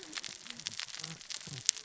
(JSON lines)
{"label": "biophony, cascading saw", "recorder": "SoundTrap 600 or HydroMoth"}